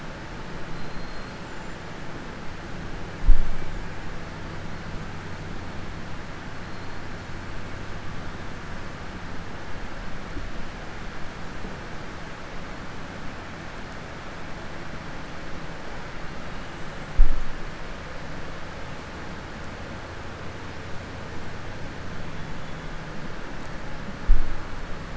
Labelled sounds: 0.7	1.4	killer whale, southern resident, 4.0 to 4.9 kHz

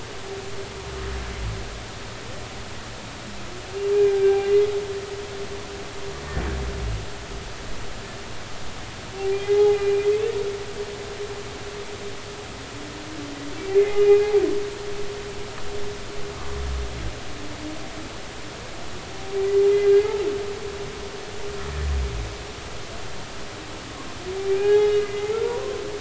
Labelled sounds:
3.9	4.4	humpback whale, 1.5 to 1.7 kHz
9.4	10.1	humpback whale, 0.80 to 4.1 kHz
13.6	14.3	humpback whale, 2.0 to 2.6 kHz
19.8	20.1	humpback whale, 1.6 to 1.7 kHz
24.5	25.8	humpback whale, 0.80 to 3.8 kHz

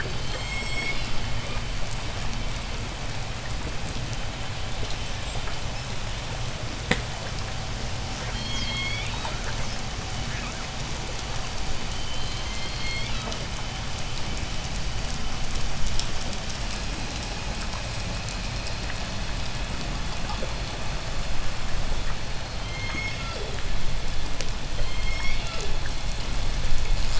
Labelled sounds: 0.0	1.3	killer whale, southern resident, J pod, 1.6 to 8.0 kHz
5.0	5.8	killer whale, southern resident, J pod, 7.1 to 8.0 kHz
8.1	9.5	killer whale, southern resident, J pod, 1.7 to 8.0 kHz
10.0	11.0	killer whale, southern resident, J pod, 0.66 to 8.0 kHz
11.9	13.4	killer whale, southern resident, J pod, 1.3 to 8.0 kHz
22.4	23.7	killer whale, southern resident, J pod, 0.21 to 7.0 kHz
24.2	26.0	killer whale, southern resident, J pod, 0.25 to 8.0 kHz
26.5	27.1	killer whale, southern resident, J pod, 0.75 to 8.0 kHz

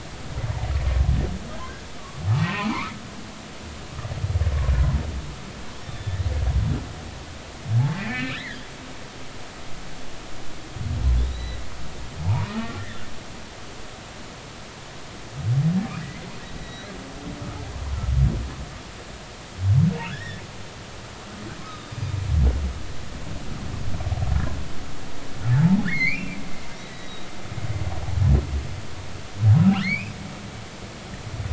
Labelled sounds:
2.4	2.7	humpback whale, 1.8 to 2.0 kHz
5.8	6.2	humpback whale, 1.7 to 3.6 kHz
8.0	8.6	humpback whale, 1.5 to 2.7 kHz
11.2	11.6	humpback whale, 3.7 to 4.0 kHz
12.2	13.0	humpback whale, 0.80 to 2.1 kHz
16.0	16.3	humpback whale, 1.8 to 2.1 kHz
16.6	17.7	humpback whale, 1.2 to 6.0 kHz
20.1	20.4	humpback whale, 1.4 to 3.8 kHz
21.6	22.1	humpback whale, 1.2 to 4.9 kHz
25.5	26.3	humpback whale, 0.83 to 4.8 kHz
26.9	27.3	humpback whale, 3.7 to 3.9 kHz
29.8	30.1	humpback whale, 1.7 to 2.7 kHz

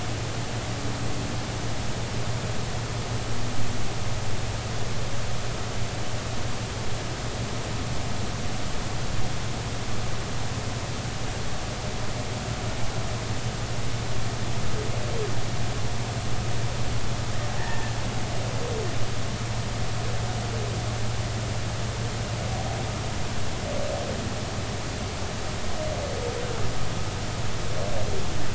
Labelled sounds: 17.6	17.9	humpback whale, 1.7 to 2.0 kHz

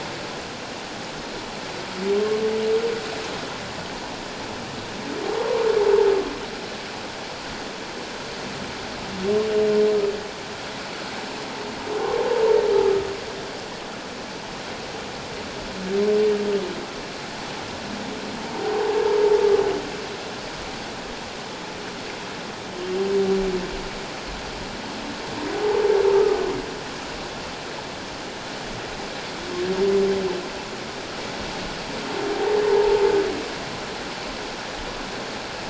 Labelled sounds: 5.3	5.7	humpback whale, 0.78 to 1.2 kHz
18.6	19.0	humpback whale, 0.78 to 1.0 kHz
25.5	26.4	humpback whale, 0.78 to 1.3 kHz
32.7	33.0	humpback whale, 0.78 to 1.0 kHz

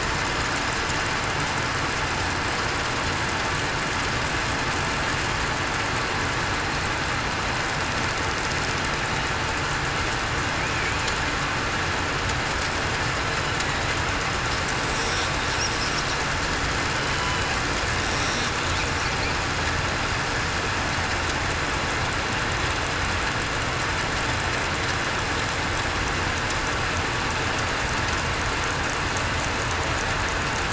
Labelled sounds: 17.0	17.5	killer whale, southern resident, 2.9 to 3.1 kHz

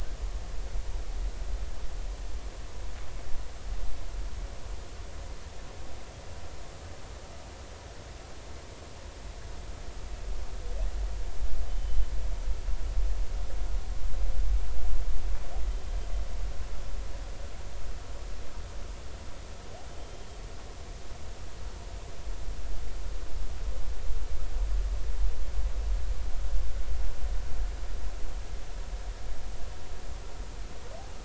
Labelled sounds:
11.7	12.0	humpback whale, 3.0 to 3.1 kHz
20.0	20.3	humpback whale, 3.1 to 3.2 kHz

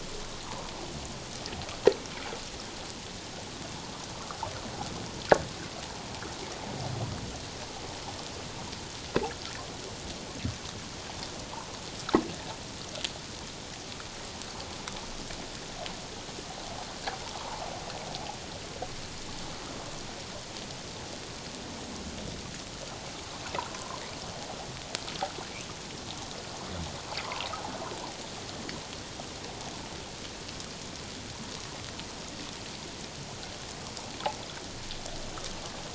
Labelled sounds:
17.4	17.6	water noise, 0.81 to 1.2 kHz
23.6	24.0	water noise, 0.84 to 1.2 kHz
27.2	27.5	water noise, 0.88 to 1.2 kHz

